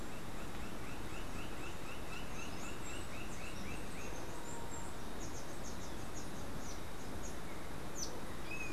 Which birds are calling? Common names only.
Roadside Hawk, Steely-vented Hummingbird